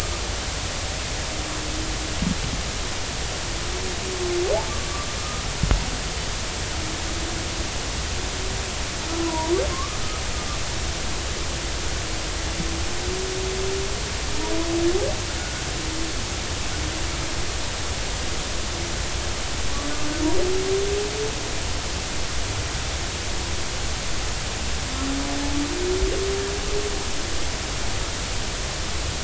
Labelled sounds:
9.2	10.0	humpback whale, 0.90 to 1.3 kHz
15.3	15.6	humpback whale, 1.4 to 1.6 kHz

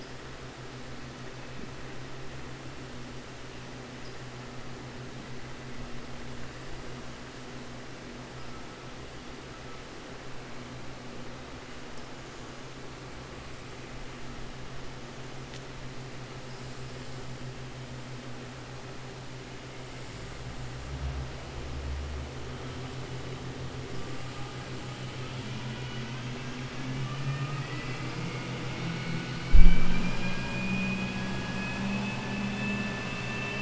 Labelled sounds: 26.8	28.1	vessel noise, 1.2 to 2.9 kHz
28.6	29.3	vessel noise, 1.4 to 2.9 kHz

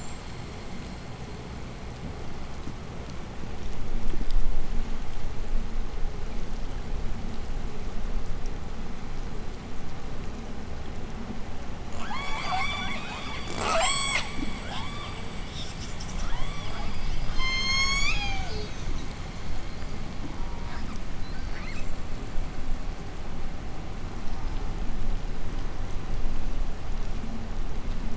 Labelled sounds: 11.5	17.7	killer whale, southern resident, J pod, 0.39 to 8.0 kHz
17.1	19.0	killer whale, southern resident, J pod, call S01, 0.26 to 8.0 kHz
20.1	22.2	killer whale, southern resident, J pod, 0.52 to 8.0 kHz

